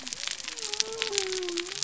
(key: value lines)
label: biophony
recorder: SoundTrap 300